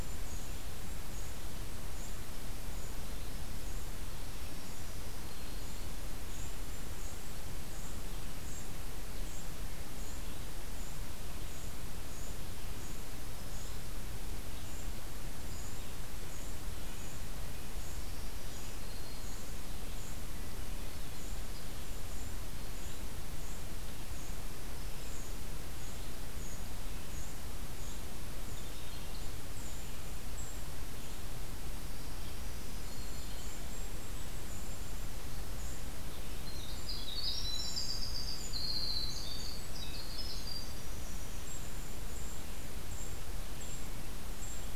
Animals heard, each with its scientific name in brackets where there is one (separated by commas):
Red-eyed Vireo (Vireo olivaceus), Black-throated Green Warbler (Setophaga virens), Golden-crowned Kinglet (Regulus satrapa), Winter Wren (Troglodytes hiemalis)